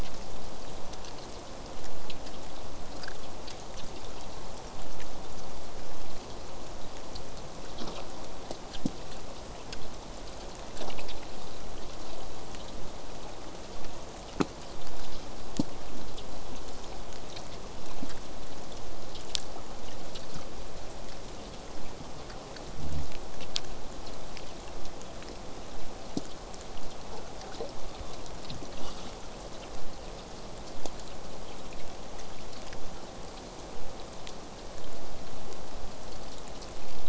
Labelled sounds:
24.7	29.8	vessel noise, 0 to 8.0 kHz

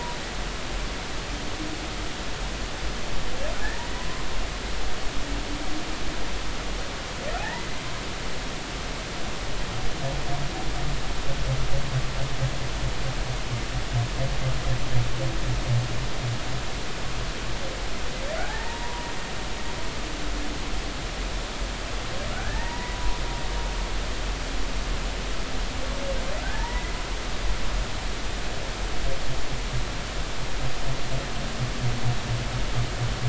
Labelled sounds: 7.4	7.7	humpback whale, 0.80 to 1.0 kHz
18.4	19.1	humpback whale, 0.80 to 1.9 kHz
22.3	23.2	humpback whale, 0.83 to 2.0 kHz
26.4	26.9	humpback whale, 0.83 to 2.2 kHz

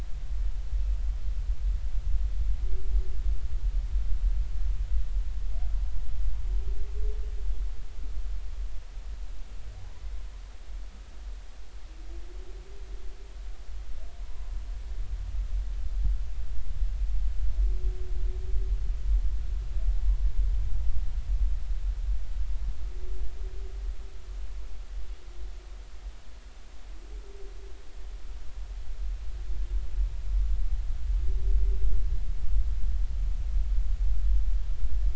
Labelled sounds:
14.2	14.6	humpback whale, 0.90 to 1.1 kHz

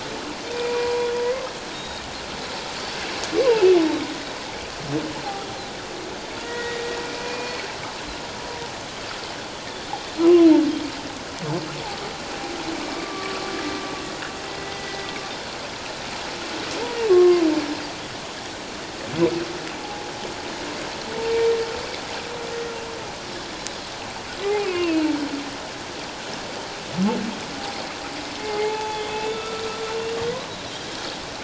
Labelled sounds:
0.5	1.1	humpback whale, 0.91 to 2.5 kHz
1.7	2.0	Pacific white-sided dolphin, 3.6 to 3.8 kHz
3.4	3.8	humpback whale, 2.5 to 2.9 kHz
6.4	7.5	humpback whale, 1.3 to 2.5 kHz
10.2	10.5	humpback whale, 2.6 to 2.9 kHz
12.9	13.4	humpback whale, 1.1 to 1.2 kHz
14.5	15.1	humpback whale, 1.9 to 2.1 kHz
17.1	17.5	humpback whale, 1.0 to 1.3 kHz
19.8	20.1	humpback whale, 0.78 to 0.97 kHz
24.5	25.1	humpback whale, 2.1 to 2.9 kHz
28.4	29.6	humpback whale, 0.78 to 3.6 kHz

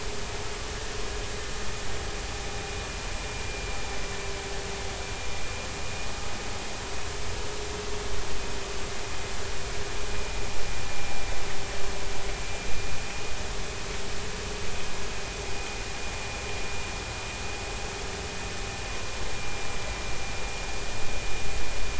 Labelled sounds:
3.3	3.7	vessel noise, 2.3 to 2.4 kHz
10.9	11.3	vessel noise, 2.3 to 2.4 kHz
12.7	13.0	vessel noise, 2.4 to 2.5 kHz

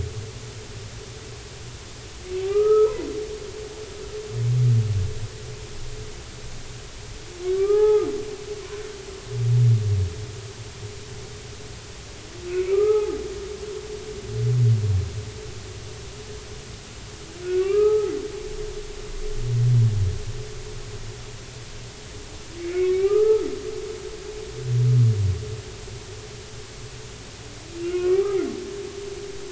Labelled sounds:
2.5	2.9	humpback whale, 1.1 to 1.4 kHz
7.6	8.1	humpback whale, 0.80 to 1.3 kHz
12.5	13.2	humpback whale, 0.80 to 2.8 kHz
17.5	18.1	humpback whale, 0.80 to 2.6 kHz
22.6	23.5	humpback whale, 1.1 to 3.8 kHz
27.8	28.4	humpback whale, 1.0 to 2.9 kHz

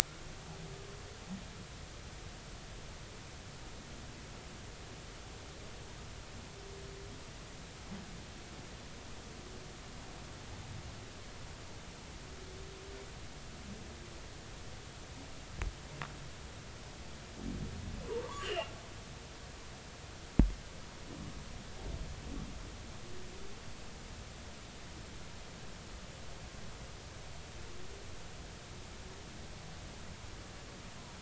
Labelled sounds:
18.2	18.7	humpback whale, 0.93 to 3.2 kHz

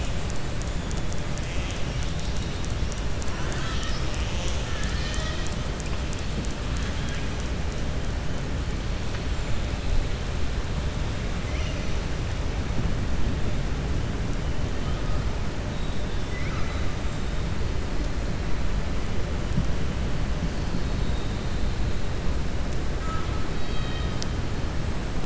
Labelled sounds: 15.7	16.9	killer whale, southern resident, 1.2 to 5.6 kHz
23.5	24.3	killer whale, southern resident, 1.3 to 4.6 kHz

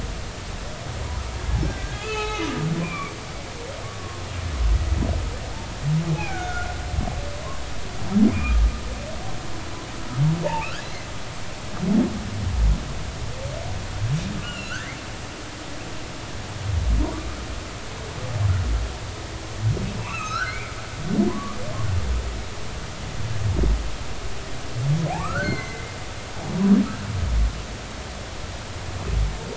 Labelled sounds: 1.6	2.5	humpback whale, 0.80 to 3.9 kHz
2.8	3.1	humpback whale, 0.99 to 2.5 kHz
3.8	4.2	humpback whale, 1.0 to 1.2 kHz
6.1	6.7	humpback whale, 0.80 to 2.6 kHz
8.3	8.6	humpback whale, 2.3 to 2.5 kHz
10.4	10.8	humpback whale, 2.2 to 2.9 kHz
14.4	15.0	humpback whale, 1.3 to 3.1 kHz
20.0	20.7	humpback whale, 1.1 to 6.7 kHz
21.3	21.6	humpback whale, 0.96 to 1.2 kHz
25.2	25.9	humpback whale, 1.0 to 4.4 kHz

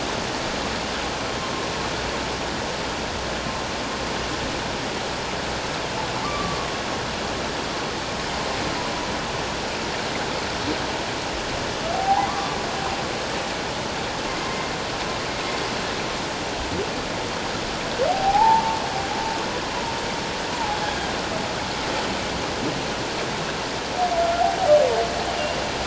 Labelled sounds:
6.2	6.6	humpback whale, 1.0 to 1.2 kHz
11.9	12.6	humpback whale, 0.78 to 1.2 kHz
18.1	19.9	humpback whale, 0.78 to 1.1 kHz
20.5	21.1	humpback whale, 0.78 to 1.7 kHz

